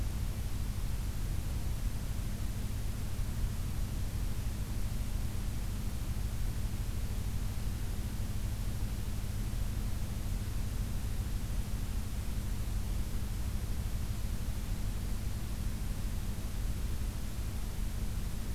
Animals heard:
forest ambience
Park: Acadia National Park